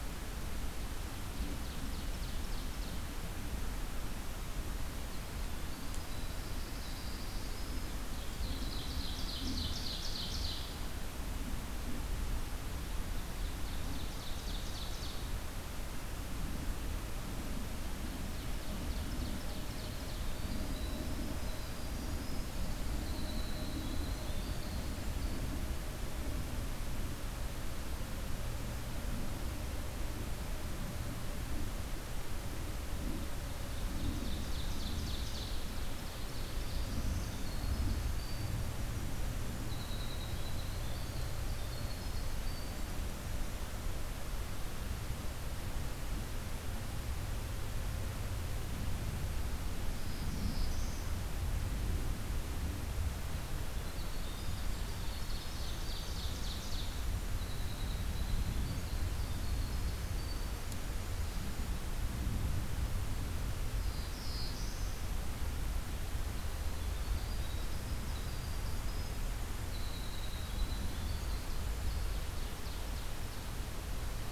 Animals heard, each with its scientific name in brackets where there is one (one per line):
Ovenbird (Seiurus aurocapilla)
Winter Wren (Troglodytes hiemalis)
Black-throated Blue Warbler (Setophaga caerulescens)